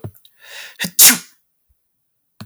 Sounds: Sneeze